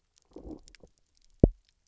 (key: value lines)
label: biophony, low growl
recorder: SoundTrap 300